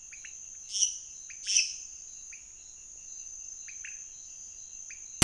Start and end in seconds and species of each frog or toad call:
0.0	5.1	pointedbelly frog
0.5	2.1	lesser tree frog
11:30pm

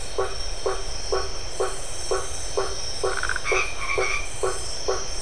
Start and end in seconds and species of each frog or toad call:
0.3	5.2	blacksmith tree frog
3.0	3.5	Phyllomedusa distincta
3.1	4.5	white-edged tree frog
9pm

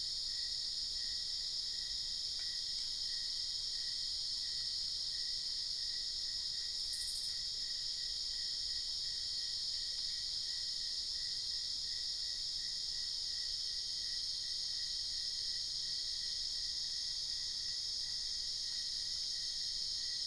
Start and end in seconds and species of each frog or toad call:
none
1am

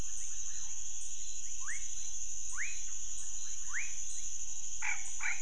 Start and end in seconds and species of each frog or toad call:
1.5	4.0	rufous frog
4.7	5.4	Scinax fuscovarius
midnight

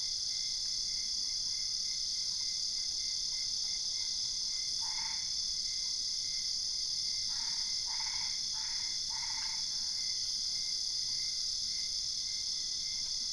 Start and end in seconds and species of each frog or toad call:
4.5	5.6	Boana albopunctata
7.2	9.9	Boana albopunctata
2:30am

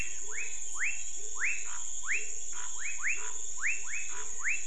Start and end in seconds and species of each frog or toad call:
0.0	4.6	pepper frog
0.0	4.6	rufous frog
0.0	4.6	Cuyaba dwarf frog
1.6	4.3	Scinax fuscovarius
8pm

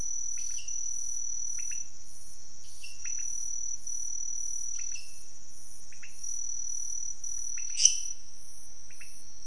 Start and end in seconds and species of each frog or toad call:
0.2	0.8	lesser tree frog
1.6	1.9	pointedbelly frog
2.6	3.0	lesser tree frog
3.0	3.3	pointedbelly frog
4.6	5.3	lesser tree frog
5.8	6.2	pointedbelly frog
7.6	8.2	lesser tree frog
8.8	9.2	pointedbelly frog
4:30am

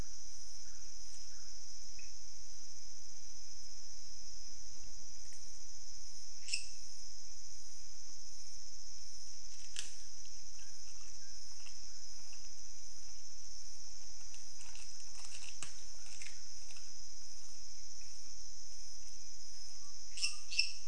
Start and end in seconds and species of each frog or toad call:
1.9	2.1	pointedbelly frog
6.3	7.0	lesser tree frog
20.2	20.8	lesser tree frog
~2am

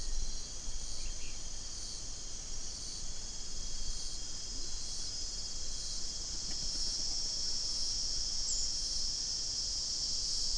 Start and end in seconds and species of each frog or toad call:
4.5	4.8	Leptodactylus latrans
7pm

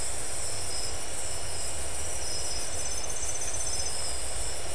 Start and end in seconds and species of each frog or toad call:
none
12:30am

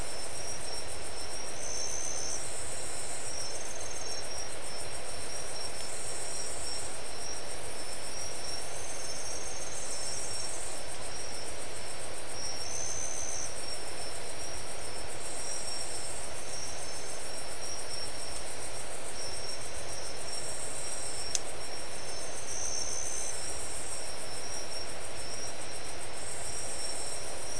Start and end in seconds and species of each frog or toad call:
none
4:30am

